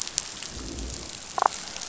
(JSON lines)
{"label": "biophony, damselfish", "recorder": "SoundTrap 500"}